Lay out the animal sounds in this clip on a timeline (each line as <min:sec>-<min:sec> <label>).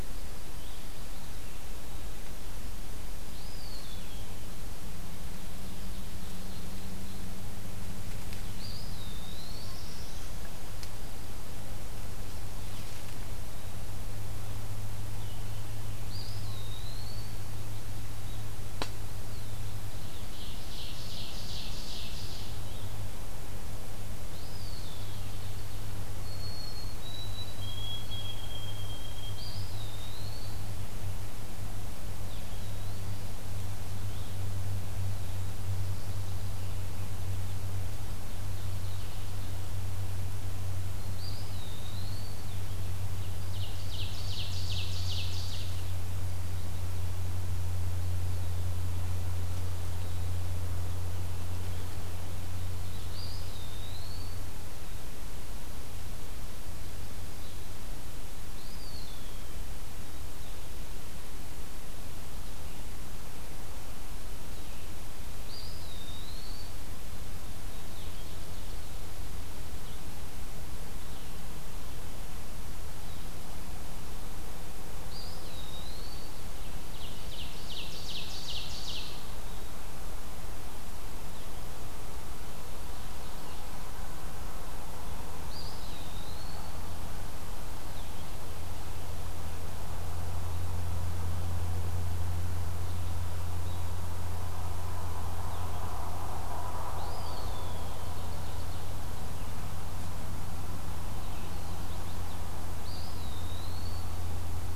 0:00.0-0:39.2 Blue-headed Vireo (Vireo solitarius)
0:03.2-0:04.4 Eastern Wood-Pewee (Contopus virens)
0:05.1-0:07.5 Ovenbird (Seiurus aurocapilla)
0:08.3-0:09.7 Eastern Wood-Pewee (Contopus virens)
0:09.0-0:10.5 Black-throated Blue Warbler (Setophaga caerulescens)
0:15.9-0:17.5 Eastern Wood-Pewee (Contopus virens)
0:19.9-0:22.6 Ovenbird (Seiurus aurocapilla)
0:24.2-0:25.3 Eastern Wood-Pewee (Contopus virens)
0:24.7-0:26.3 Ovenbird (Seiurus aurocapilla)
0:26.0-0:29.7 White-throated Sparrow (Zonotrichia albicollis)
0:29.3-0:30.6 Eastern Wood-Pewee (Contopus virens)
0:32.3-0:33.3 Eastern Wood-Pewee (Contopus virens)
0:41.0-0:42.5 Eastern Wood-Pewee (Contopus virens)
0:43.1-0:45.8 Ovenbird (Seiurus aurocapilla)
0:53.0-0:54.4 Eastern Wood-Pewee (Contopus virens)
0:57.1-1:39.7 Blue-headed Vireo (Vireo solitarius)
0:58.5-0:59.6 Eastern Wood-Pewee (Contopus virens)
1:05.3-1:06.9 Eastern Wood-Pewee (Contopus virens)
1:15.0-1:16.4 Eastern Wood-Pewee (Contopus virens)
1:16.7-1:19.5 Ovenbird (Seiurus aurocapilla)
1:25.2-1:26.8 Eastern Wood-Pewee (Contopus virens)
1:36.8-1:37.9 Eastern Wood-Pewee (Contopus virens)
1:37.2-1:39.0 Ovenbird (Seiurus aurocapilla)
1:41.3-1:42.5 Chestnut-sided Warbler (Setophaga pensylvanica)
1:42.6-1:44.2 Eastern Wood-Pewee (Contopus virens)